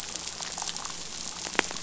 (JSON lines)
{"label": "biophony", "recorder": "SoundTrap 500"}